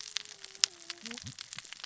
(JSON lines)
{"label": "biophony, cascading saw", "recorder": "SoundTrap 600 or HydroMoth"}